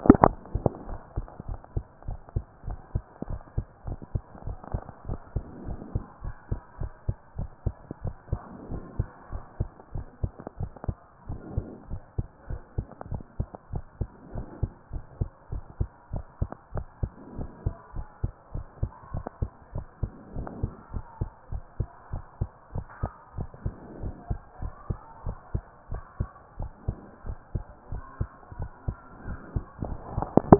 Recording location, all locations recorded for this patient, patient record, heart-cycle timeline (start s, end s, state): pulmonary valve (PV)
aortic valve (AV)+pulmonary valve (PV)+tricuspid valve (TV)+mitral valve (MV)
#Age: Child
#Sex: Female
#Height: 135.0 cm
#Weight: 34.3 kg
#Pregnancy status: False
#Murmur: Absent
#Murmur locations: nan
#Most audible location: nan
#Systolic murmur timing: nan
#Systolic murmur shape: nan
#Systolic murmur grading: nan
#Systolic murmur pitch: nan
#Systolic murmur quality: nan
#Diastolic murmur timing: nan
#Diastolic murmur shape: nan
#Diastolic murmur grading: nan
#Diastolic murmur pitch: nan
#Diastolic murmur quality: nan
#Outcome: Abnormal
#Campaign: 2014 screening campaign
0.00	0.20	diastole
0.20	0.36	S1
0.36	0.52	systole
0.52	0.70	S2
0.70	0.88	diastole
0.88	1.00	S1
1.00	1.16	systole
1.16	1.26	S2
1.26	1.48	diastole
1.48	1.58	S1
1.58	1.74	systole
1.74	1.84	S2
1.84	2.08	diastole
2.08	2.18	S1
2.18	2.34	systole
2.34	2.44	S2
2.44	2.66	diastole
2.66	2.78	S1
2.78	2.94	systole
2.94	3.04	S2
3.04	3.28	diastole
3.28	3.40	S1
3.40	3.56	systole
3.56	3.66	S2
3.66	3.86	diastole
3.86	3.98	S1
3.98	4.14	systole
4.14	4.22	S2
4.22	4.46	diastole
4.46	4.58	S1
4.58	4.72	systole
4.72	4.82	S2
4.82	5.08	diastole
5.08	5.20	S1
5.20	5.34	systole
5.34	5.44	S2
5.44	5.66	diastole
5.66	5.80	S1
5.80	5.94	systole
5.94	6.04	S2
6.04	6.24	diastole
6.24	6.34	S1
6.34	6.50	systole
6.50	6.60	S2
6.60	6.80	diastole
6.80	6.92	S1
6.92	7.06	systole
7.06	7.16	S2
7.16	7.38	diastole
7.38	7.50	S1
7.50	7.64	systole
7.64	7.74	S2
7.74	8.04	diastole
8.04	8.14	S1
8.14	8.30	systole
8.30	8.40	S2
8.40	8.70	diastole
8.70	8.82	S1
8.82	8.98	systole
8.98	9.08	S2
9.08	9.32	diastole
9.32	9.42	S1
9.42	9.58	systole
9.58	9.68	S2
9.68	9.94	diastole
9.94	10.06	S1
10.06	10.22	systole
10.22	10.32	S2
10.32	10.60	diastole
10.60	10.70	S1
10.70	10.86	systole
10.86	10.96	S2
10.96	11.28	diastole
11.28	11.40	S1
11.40	11.56	systole
11.56	11.66	S2
11.66	11.90	diastole
11.90	12.02	S1
12.02	12.16	systole
12.16	12.26	S2
12.26	12.50	diastole
12.50	12.60	S1
12.60	12.76	systole
12.76	12.86	S2
12.86	13.10	diastole
13.10	13.22	S1
13.22	13.38	systole
13.38	13.48	S2
13.48	13.72	diastole
13.72	13.84	S1
13.84	14.00	systole
14.00	14.08	S2
14.08	14.34	diastole
14.34	14.46	S1
14.46	14.62	systole
14.62	14.70	S2
14.70	14.92	diastole
14.92	15.04	S1
15.04	15.20	systole
15.20	15.30	S2
15.30	15.52	diastole
15.52	15.64	S1
15.64	15.78	systole
15.78	15.88	S2
15.88	16.12	diastole
16.12	16.24	S1
16.24	16.40	systole
16.40	16.50	S2
16.50	16.74	diastole
16.74	16.86	S1
16.86	17.02	systole
17.02	17.12	S2
17.12	17.36	diastole
17.36	17.50	S1
17.50	17.64	systole
17.64	17.74	S2
17.74	17.96	diastole
17.96	18.06	S1
18.06	18.22	systole
18.22	18.32	S2
18.32	18.54	diastole
18.54	18.66	S1
18.66	18.80	systole
18.80	18.90	S2
18.90	19.14	diastole
19.14	19.24	S1
19.24	19.40	systole
19.40	19.50	S2
19.50	19.74	diastole
19.74	19.86	S1
19.86	20.02	systole
20.02	20.12	S2
20.12	20.36	diastole
20.36	20.48	S1
20.48	20.62	systole
20.62	20.72	S2
20.72	20.92	diastole
20.92	21.04	S1
21.04	21.20	systole
21.20	21.30	S2
21.30	21.52	diastole
21.52	21.62	S1
21.62	21.78	systole
21.78	21.88	S2
21.88	22.12	diastole
22.12	22.24	S1
22.24	22.40	systole
22.40	22.50	S2
22.50	22.74	diastole
22.74	22.86	S1
22.86	23.02	systole
23.02	23.12	S2
23.12	23.36	diastole
23.36	23.48	S1
23.48	23.64	systole
23.64	23.74	S2
23.74	24.02	diastole
24.02	24.14	S1
24.14	24.30	systole
24.30	24.40	S2
24.40	24.62	diastole
24.62	24.72	S1
24.72	24.88	systole
24.88	24.98	S2
24.98	25.26	diastole
25.26	25.36	S1
25.36	25.54	systole
25.54	25.62	S2
25.62	25.92	diastole
25.92	26.02	S1
26.02	26.18	systole
26.18	26.28	S2
26.28	26.58	diastole
26.58	26.70	S1
26.70	26.86	systole
26.86	26.96	S2
26.96	27.26	diastole
27.26	27.38	S1
27.38	27.54	systole
27.54	27.64	S2
27.64	27.92	diastole
27.92	28.02	S1
28.02	28.18	systole
28.18	28.30	S2
28.30	28.58	diastole
28.58	28.70	S1
28.70	28.86	systole
28.86	28.96	S2
28.96	29.26	diastole
29.26	29.38	S1
29.38	29.54	systole
29.54	29.64	S2
29.64	30.16	diastole
30.16	30.28	S1
30.28	30.46	systole
30.46	30.52	S2
30.52	30.56	diastole
30.56	30.59	S1